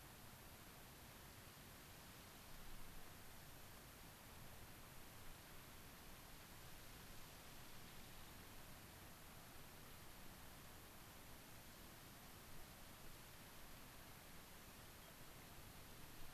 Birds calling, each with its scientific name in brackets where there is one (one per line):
unidentified bird